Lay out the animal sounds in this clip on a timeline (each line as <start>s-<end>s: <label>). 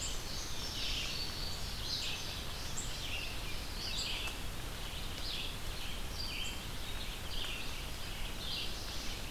0.0s-2.9s: Indigo Bunting (Passerina cyanea)
0.0s-9.3s: Red-eyed Vireo (Vireo olivaceus)